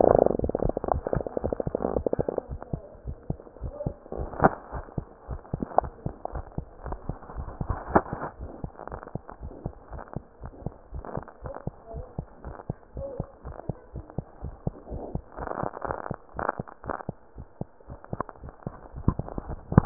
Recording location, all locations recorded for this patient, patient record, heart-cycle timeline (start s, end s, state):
mitral valve (MV)
aortic valve (AV)+mitral valve (MV)
#Age: Neonate
#Sex: Female
#Height: 47.0 cm
#Weight: 2.8160000000000003 kg
#Pregnancy status: False
#Murmur: Absent
#Murmur locations: nan
#Most audible location: nan
#Systolic murmur timing: nan
#Systolic murmur shape: nan
#Systolic murmur grading: nan
#Systolic murmur pitch: nan
#Systolic murmur quality: nan
#Diastolic murmur timing: nan
#Diastolic murmur shape: nan
#Diastolic murmur grading: nan
#Diastolic murmur pitch: nan
#Diastolic murmur quality: nan
#Outcome: Normal
#Campaign: 2015 screening campaign
0.00	3.04	unannotated
3.04	3.16	S1
3.16	3.28	systole
3.28	3.38	S2
3.38	3.60	diastole
3.60	3.74	S1
3.74	3.82	systole
3.82	3.96	S2
3.96	4.18	diastole
4.18	4.32	S1
4.32	4.40	systole
4.40	4.54	S2
4.54	4.74	diastole
4.74	4.86	S1
4.86	4.96	systole
4.96	5.06	S2
5.06	5.28	diastole
5.28	5.40	S1
5.40	5.52	systole
5.52	5.62	S2
5.62	5.78	diastole
5.78	5.92	S1
5.92	6.04	systole
6.04	6.14	S2
6.14	6.32	diastole
6.32	6.44	S1
6.44	6.54	systole
6.54	6.66	S2
6.66	6.84	diastole
6.84	7.00	S1
7.00	7.08	systole
7.08	7.18	S2
7.18	7.34	diastole
7.34	7.52	S1
7.52	7.60	systole
7.60	7.74	S2
7.74	7.88	diastole
7.88	8.04	S1
8.04	8.10	systole
8.10	8.20	S2
8.20	8.40	diastole
8.40	8.52	S1
8.52	8.60	systole
8.60	8.70	S2
8.70	8.90	diastole
8.90	9.02	S1
9.02	9.14	systole
9.14	9.22	S2
9.22	9.42	diastole
9.42	9.54	S1
9.54	9.64	systole
9.64	9.74	S2
9.74	9.92	diastole
9.92	10.02	S1
10.02	10.12	systole
10.12	10.24	S2
10.24	10.42	diastole
10.42	10.54	S1
10.54	10.64	systole
10.64	10.76	S2
10.76	10.94	diastole
10.94	11.04	S1
11.04	11.14	systole
11.14	11.26	S2
11.26	11.44	diastole
11.44	11.54	S1
11.54	11.66	systole
11.66	11.74	S2
11.74	11.94	diastole
11.94	12.06	S1
12.06	12.18	systole
12.18	12.28	S2
12.28	12.44	diastole
12.44	12.56	S1
12.56	12.68	systole
12.68	12.76	S2
12.76	12.96	diastole
12.96	13.08	S1
13.08	13.16	systole
13.16	13.26	S2
13.26	13.44	diastole
13.44	13.56	S1
13.56	13.67	systole
13.67	13.76	S2
13.76	13.94	diastole
13.94	14.06	S1
14.06	14.14	systole
14.14	14.24	S2
14.24	14.44	diastole
14.44	14.54	S1
14.54	14.62	systole
14.62	14.74	S2
14.74	14.92	diastole
14.92	15.04	S1
15.04	15.12	systole
15.12	15.22	S2
15.22	19.86	unannotated